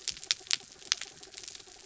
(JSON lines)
{"label": "anthrophony, mechanical", "recorder": "SoundTrap 300"}